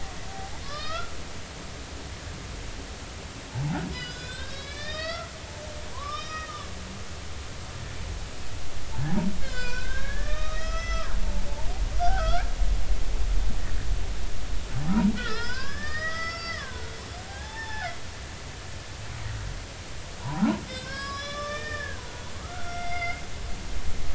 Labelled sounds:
0.3	1.1	humpback whale, 0.80 to 5.3 kHz
3.5	6.5	humpback whale, 0.80 to 5.7 kHz
9.4	11.1	humpback whale, 0.93 to 6.0 kHz
12.0	12.5	humpback whale, 1.2 to 1.8 kHz
15.2	17.0	humpback whale, 0.90 to 5.6 kHz
17.3	17.9	humpback whale, 0.80 to 5.4 kHz
20.2	23.2	humpback whale, 0.80 to 6.1 kHz

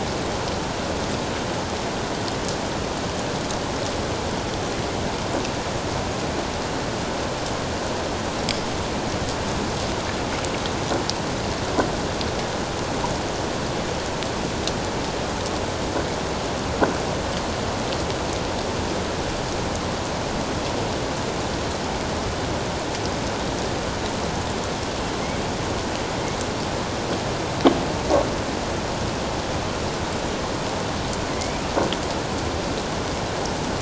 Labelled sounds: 31.3	31.7	killer whale, northern resident, A clan, AA subclan, A04 pod, 2.0 to 2.6 kHz

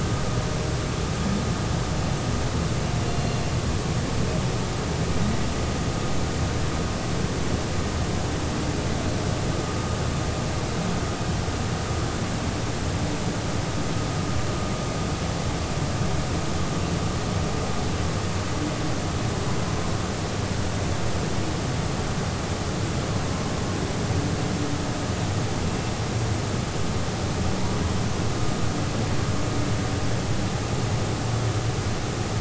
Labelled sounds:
3.1	3.5	humpback whale, 4.0 to 4.3 kHz

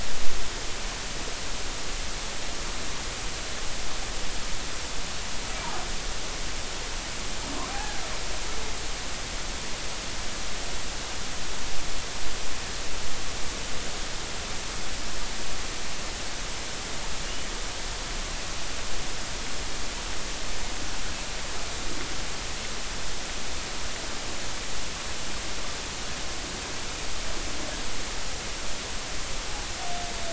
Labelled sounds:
7.7	8.0	humpback whale, 0.80 to 1.8 kHz
17.2	17.5	humpback whale, 2.8 to 3.1 kHz

